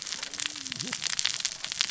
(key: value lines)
label: biophony, cascading saw
recorder: SoundTrap 600 or HydroMoth